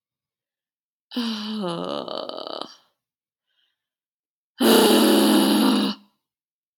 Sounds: Sigh